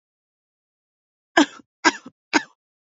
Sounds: Cough